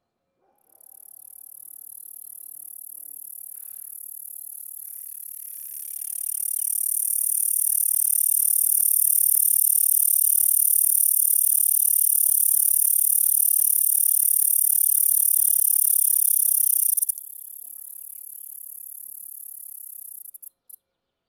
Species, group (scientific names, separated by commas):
Bradyporus dasypus, Orthoptera